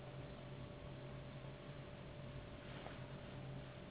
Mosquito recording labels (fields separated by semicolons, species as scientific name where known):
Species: Anopheles gambiae s.s.; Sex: female; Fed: unfed; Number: one; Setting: insect culture